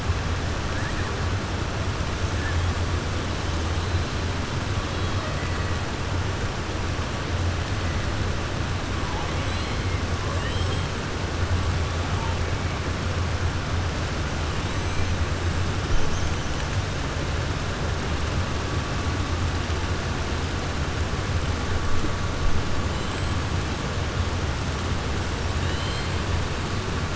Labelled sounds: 9.3	9.9	killer whale, 2.1 to 4.3 kHz
23.0	23.4	killer whale, 7.4 to 7.9 kHz
25.6	26.1	killer whale, 2.2 to 4.7 kHz

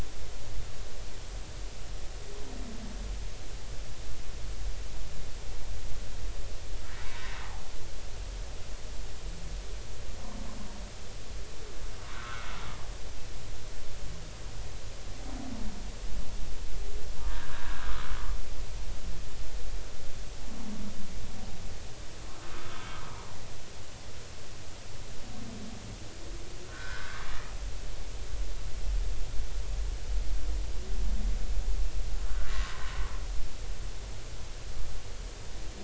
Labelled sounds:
7.0	7.3	humpback whale, 0.90 to 1.1 kHz
12.1	12.5	humpback whale, 1.2 to 1.6 kHz
17.3	18.1	humpback whale, 1.2 to 1.8 kHz
22.4	23.0	humpback whale, 1.2 to 3.5 kHz
26.7	27.3	humpback whale, 1.1 to 1.8 kHz
32.5	32.8	humpback whale, 0.99 to 1.1 kHz

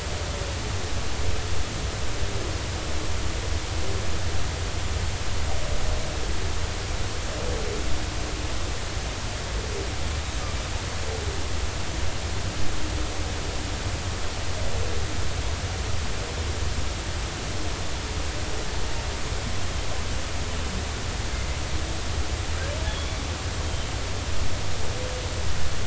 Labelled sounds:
22.9	23.2	humpback whale, 3.2 to 3.5 kHz
23.6	23.9	humpback whale, 3.0 to 3.3 kHz

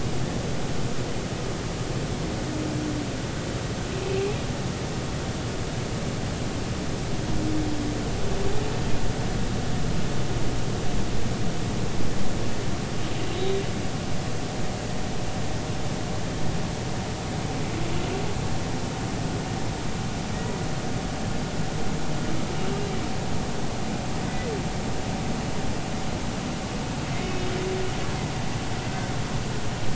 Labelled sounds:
13.3	13.6	humpback whale, 3.6 to 3.9 kHz

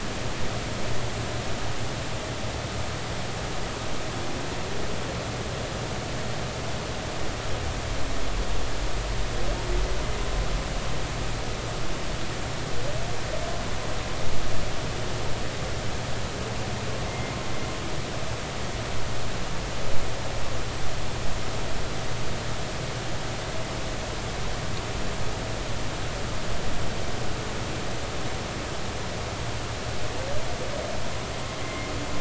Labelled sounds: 17.1	17.3	humpback whale, 2.0 to 2.2 kHz
31.6	31.9	humpback whale, 2.0 to 2.2 kHz

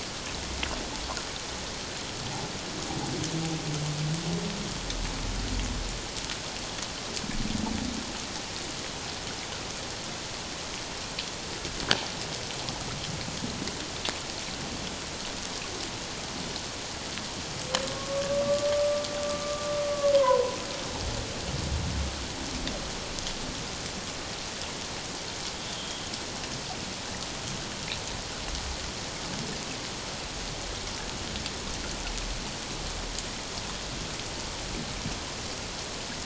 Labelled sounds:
17.9	18.7	humpback whale, 1.0 to 1.2 kHz
19.4	19.7	humpback whale, 1.1 to 1.2 kHz
20.1	20.6	humpback whale, 0.91 to 1.1 kHz
25.7	26.0	humpback whale, 3.1 to 3.4 kHz

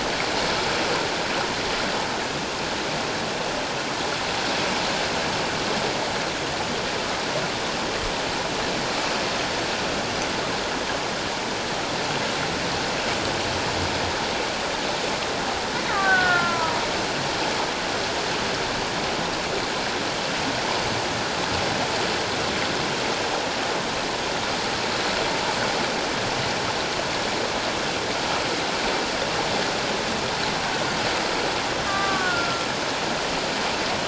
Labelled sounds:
15.9	16.8	killer whale, Bigg's (transient), 0.91 to 1.9 kHz
31.9	32.7	killer whale, Bigg's (transient), 1.0 to 1.6 kHz

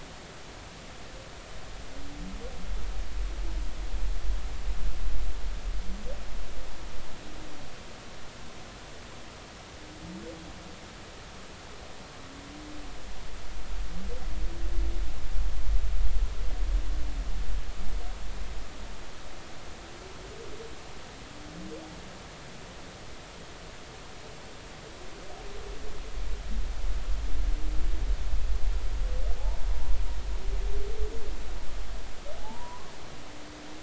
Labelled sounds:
32.4	32.9	humpback whale, 0.80 to 1.2 kHz

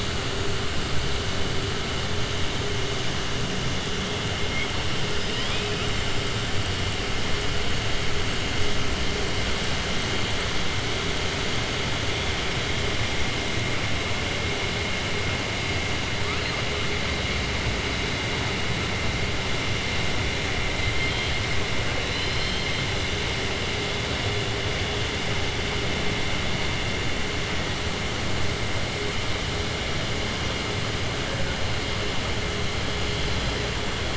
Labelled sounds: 22.0	22.8	killer whale, southern resident, 2.6 to 5.5 kHz

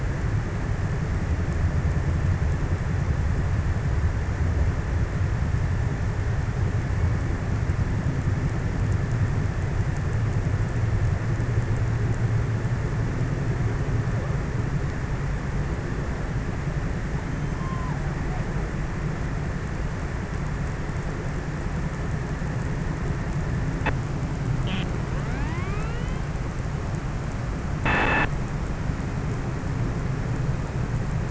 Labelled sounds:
17.2	18.7	killer whale, offshore, 0.30 to 1.4 kHz

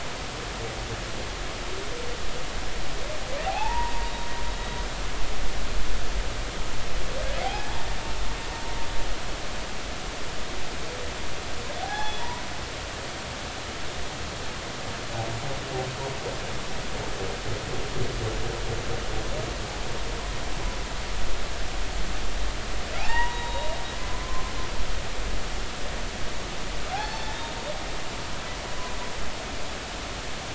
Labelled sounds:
3.4	4.1	humpback whale, 0.80 to 1.0 kHz
7.4	7.8	humpback whale, 0.80 to 0.96 kHz
11.8	13.2	humpback whale, 0.80 to 3.5 kHz
23.0	23.7	humpback whale, 0.80 to 3.9 kHz
24.1	24.5	humpback whale, 0.99 to 1.1 kHz
26.9	27.3	humpback whale, 0.80 to 4.5 kHz

